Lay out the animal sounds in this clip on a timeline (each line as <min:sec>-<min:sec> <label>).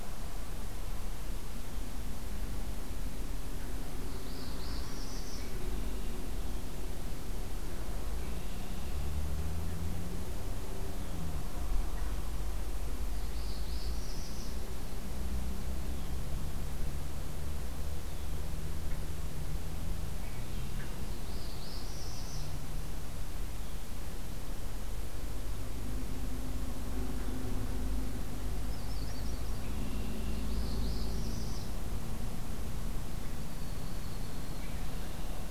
0:03.9-0:05.5 Northern Parula (Setophaga americana)
0:08.1-0:09.2 Red-winged Blackbird (Agelaius phoeniceus)
0:13.1-0:14.7 Northern Parula (Setophaga americana)
0:19.8-0:21.2 Red-winged Blackbird (Agelaius phoeniceus)
0:21.0-0:22.7 Northern Parula (Setophaga americana)
0:28.5-0:29.8 Yellow-rumped Warbler (Setophaga coronata)
0:29.6-0:30.4 Red-winged Blackbird (Agelaius phoeniceus)
0:30.4-0:31.7 Northern Parula (Setophaga americana)
0:33.1-0:34.7 American Robin (Turdus migratorius)
0:34.4-0:35.5 Red-winged Blackbird (Agelaius phoeniceus)